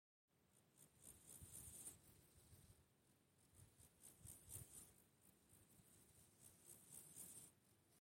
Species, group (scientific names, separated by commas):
Chorthippus dorsatus, Orthoptera